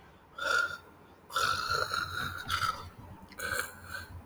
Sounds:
Throat clearing